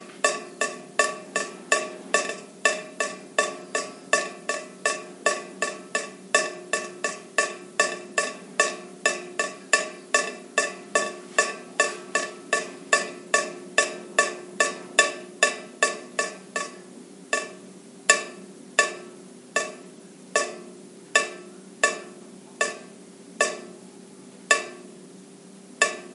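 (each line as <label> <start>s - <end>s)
Water dripping periodically onto metal. 0.1s - 26.1s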